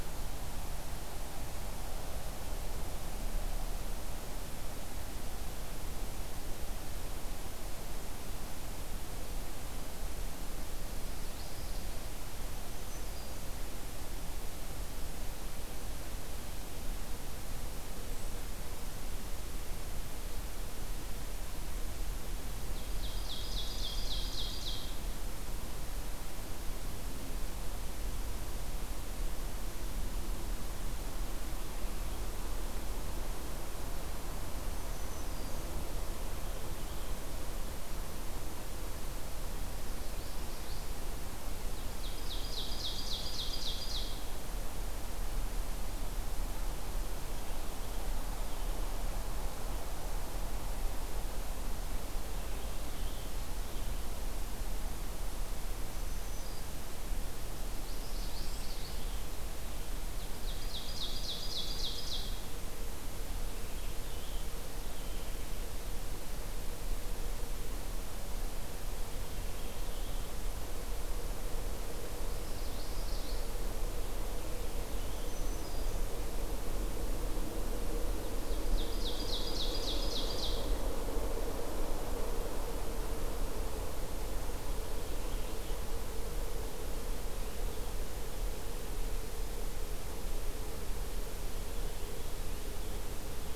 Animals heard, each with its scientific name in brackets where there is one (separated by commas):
Common Yellowthroat (Geothlypis trichas), Ovenbird (Seiurus aurocapilla), Black-throated Green Warbler (Setophaga virens)